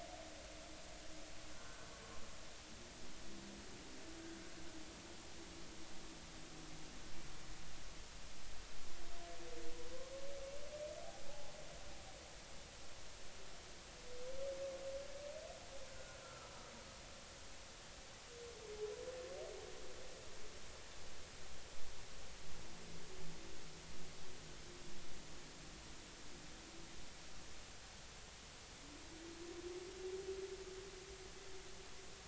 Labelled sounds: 15.9	16.6	humpback whale, 1.2 to 1.5 kHz

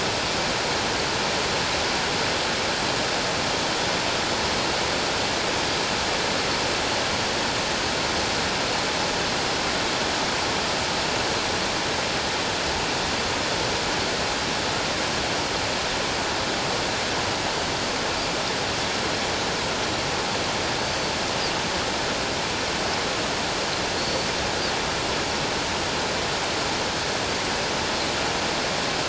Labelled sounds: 20.8	21.1	Pacific white-sided dolphin, 4.4 to 4.7 kHz
24.0	24.3	Pacific white-sided dolphin, 4.2 to 4.5 kHz

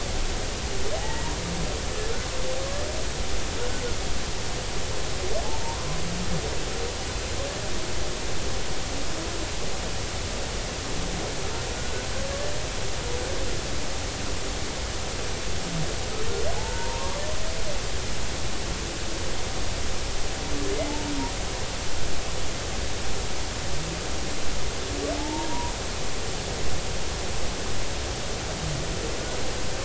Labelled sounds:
1.0	1.3	humpback whale, 0.80 to 2.0 kHz
11.8	12.0	humpback whale, 1.4 to 1.6 kHz
16.6	17.2	humpback whale, 0.80 to 1.2 kHz
25.2	25.7	humpback whale, 0.80 to 1.1 kHz

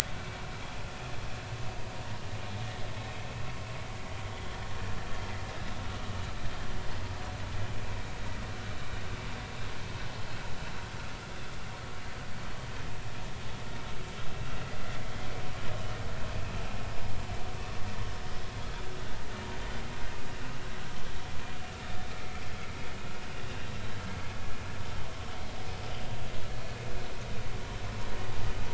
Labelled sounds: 0.1	0.4	vessel noise, 2.2 to 2.4 kHz
23.5	23.7	vessel noise, 2.7 to 2.9 kHz

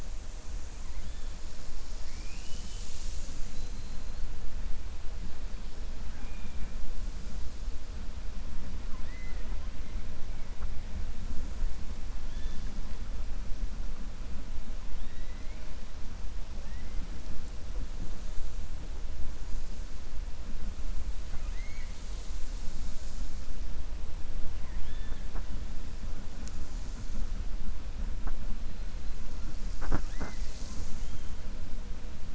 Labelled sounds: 6.1	6.7	killer whale, 0.79 to 3.2 kHz
8.8	9.6	killer whale, 0.40 to 2.5 kHz
12.2	12.7	killer whale, 1.7 to 6.4 kHz
14.9	15.7	killer whale, 1.5 to 3.9 kHz

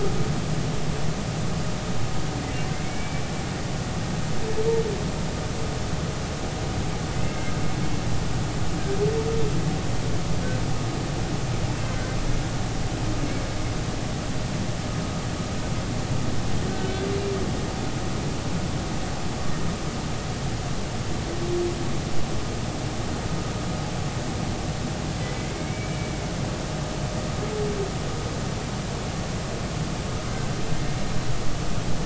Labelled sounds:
2.7	3.2	humpback whale, 2.0 to 2.4 kHz
7.2	7.6	humpback whale, 1.5 to 2.2 kHz
16.7	17.1	humpback whale, 1.5 to 1.6 kHz
25.5	26.1	humpback whale, 2.1 to 2.4 kHz

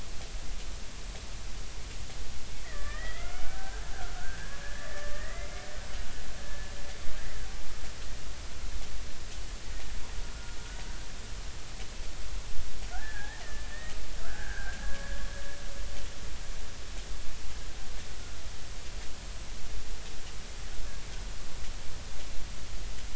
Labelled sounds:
2.6	3.8	killer whale, Bigg's (transient), 1.1 to 3.5 kHz
4.1	5.7	killer whale, Bigg's (transient), 1.1 to 2.3 kHz
12.9	15.2	killer whale, Bigg's (transient), 1.1 to 2.0 kHz

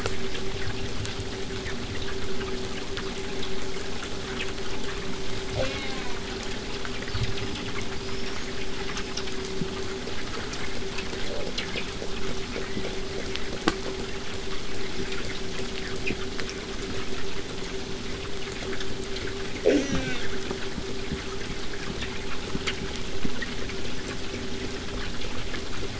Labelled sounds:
5.6	6.3	killer whale, southern resident, J pod, call S04, 0.29 to 5.5 kHz
7.0	9.7	killer whale, southern resident, whistle, 4.0 to 6.9 kHz
12.6	12.9	killer whale, southern resident, 1.5 to 2.3 kHz
19.6	20.4	killer whale, southern resident, J pod, call S04, 0.18 to 8.0 kHz
21.0	25.9	vessel noise, 0 to 8.0 kHz

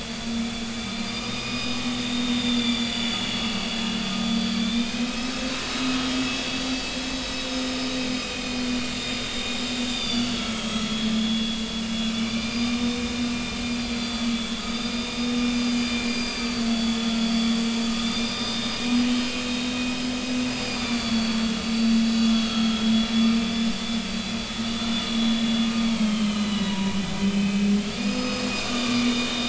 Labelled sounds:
0.0	3.8	vessel noise, 2.3 to 5.1 kHz
4.3	5.5	vessel noise, 2.3 to 6.6 kHz
6.3	6.9	vessel noise, 3.3 to 4.7 kHz
7.5	8.6	vessel noise, 2.4 to 5.2 kHz
8.9	11.6	vessel noise, 3.1 to 7.9 kHz
12.1	13.0	vessel noise, 2.3 to 4.9 kHz
13.7	17.5	vessel noise, 3.2 to 4.9 kHz
18.0	22.9	vessel noise, 2.3 to 5.1 kHz
23.4	23.7	vessel noise, 3.4 to 3.6 kHz
24.7	25.2	vessel noise, 2.8 to 3.6 kHz
26.0	29.4	vessel noise, 0.90 to 5.1 kHz

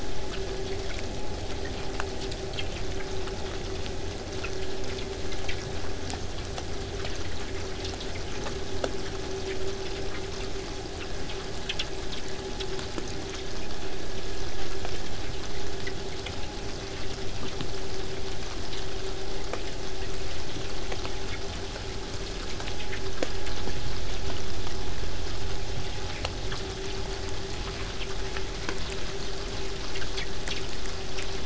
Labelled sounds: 26.4	31.4	vessel noise, 0 to 8.0 kHz

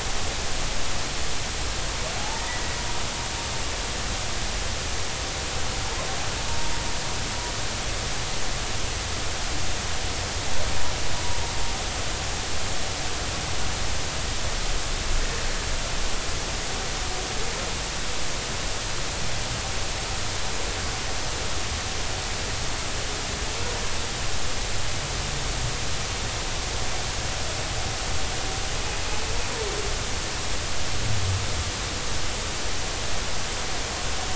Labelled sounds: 2.2	2.6	humpback whale, 0.80 to 2.0 kHz

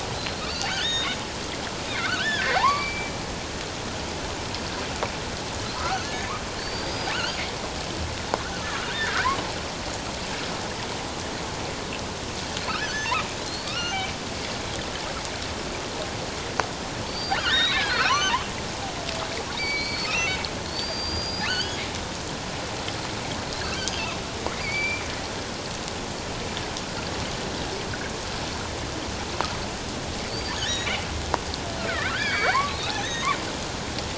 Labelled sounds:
0.1	1.2	killer whale, offshore, 1.7 to 6.8 kHz
2.0	3.1	killer whale, offshore, 0.78 to 4.7 kHz
5.8	7.4	killer whale, offshore, 1.2 to 6.6 kHz
8.5	9.3	killer whale, offshore, 1.2 to 6.4 kHz
12.7	14.1	killer whale, offshore, 1.2 to 6.4 kHz
17.1	18.5	killer whale, offshore, 0.94 to 6.3 kHz
19.5	21.8	killer whale, offshore, 1.3 to 6.2 kHz
24.5	25.0	killer whale, offshore, 2.1 to 4.8 kHz
30.3	30.9	killer whale, offshore, 3.4 to 6.8 kHz
31.8	33.3	killer whale, offshore, 0.94 to 6.5 kHz

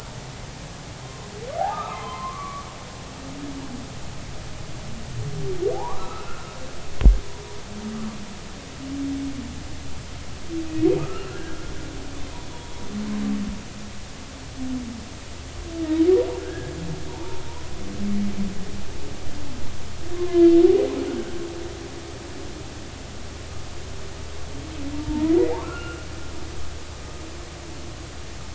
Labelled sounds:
1.0	1.3	humpback whale, 0.93 to 1.1 kHz
1.6	2.7	humpback whale, 0.80 to 3.2 kHz
5.7	6.5	humpback whale, 0.80 to 1.4 kHz
11.3	11.6	humpback whale, 1.5 to 1.7 kHz
12.0	12.8	humpback whale, 1.2 to 3.5 kHz
16.4	17.4	humpback whale, 0.83 to 1.8 kHz
20.1	20.4	humpback whale, 0.96 to 1.1 kHz
24.9	26.1	humpback whale, 0.83 to 2.9 kHz

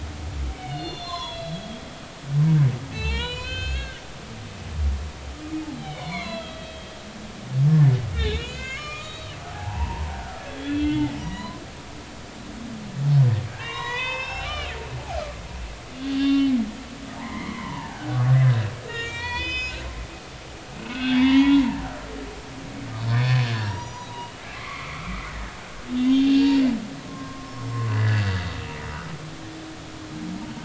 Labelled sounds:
0.6	2.6	humpback whale, 0.90 to 4.4 kHz
2.9	4.0	humpback whale, 0.83 to 7.4 kHz
5.7	6.9	humpback whale, 0.93 to 4.4 kHz
8.1	11.6	humpback whale, 0.80 to 7.4 kHz
13.6	14.7	humpback whale, 0.86 to 6.4 kHz
16.1	16.6	humpback whale, 1.9 to 3.1 kHz
17.2	18.1	humpback whale, 0.80 to 2.3 kHz
18.9	19.8	humpback whale, 0.90 to 7.6 kHz
20.8	21.6	humpback whale, 0.80 to 3.9 kHz
23.1	25.0	humpback whale, 0.86 to 6.9 kHz
26.0	26.6	humpback whale, 2.7 to 4.6 kHz
27.0	27.5	humpback whale, 0.99 to 1.2 kHz
27.9	28.4	humpback whale, 1.6 to 4.6 kHz

